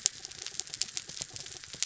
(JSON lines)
{"label": "anthrophony, mechanical", "recorder": "SoundTrap 300"}